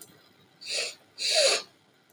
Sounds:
Sniff